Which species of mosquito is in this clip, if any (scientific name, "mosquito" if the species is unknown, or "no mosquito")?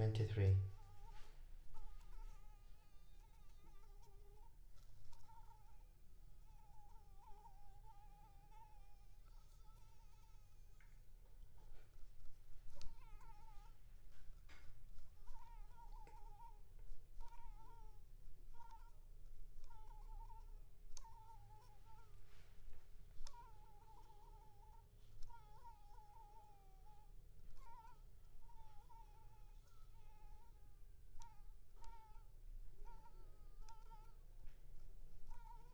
Anopheles arabiensis